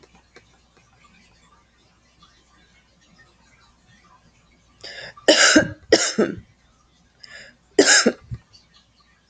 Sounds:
Cough